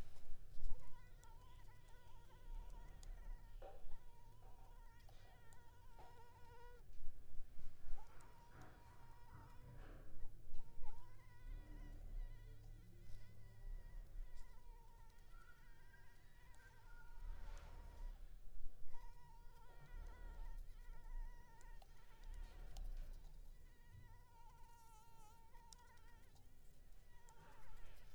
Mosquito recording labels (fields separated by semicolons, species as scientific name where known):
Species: Anopheles arabiensis; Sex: female; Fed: unfed; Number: one; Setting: cup